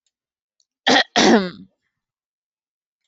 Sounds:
Throat clearing